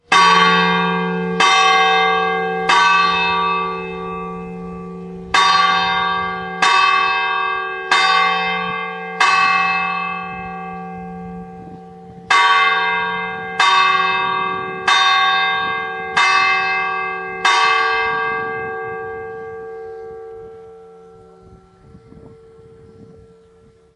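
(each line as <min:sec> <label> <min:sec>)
0:00.0 A bell rings rhythmically. 0:03.9
0:03.9 A bell echoes as it rings. 0:05.4
0:05.4 A bell rings rhythmically. 0:10.4
0:10.4 A bell echoes as it rings. 0:12.4
0:12.3 A bell rings rhythmically. 0:18.8
0:18.7 A bell echoes as it rings. 0:24.0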